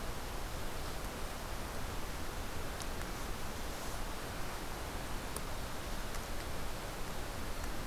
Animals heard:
forest ambience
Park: Katahdin Woods and Waters National Monument